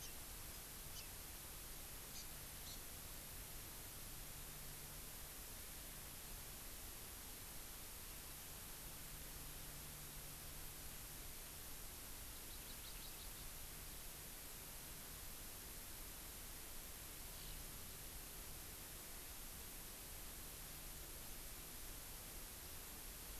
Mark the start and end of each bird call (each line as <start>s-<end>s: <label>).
0.0s-0.1s: Hawaii Amakihi (Chlorodrepanis virens)
0.9s-1.1s: Hawaii Amakihi (Chlorodrepanis virens)
2.1s-2.2s: Hawaii Amakihi (Chlorodrepanis virens)
2.6s-2.8s: Hawaii Amakihi (Chlorodrepanis virens)
12.3s-13.5s: Hawaii Amakihi (Chlorodrepanis virens)
17.2s-17.6s: Eurasian Skylark (Alauda arvensis)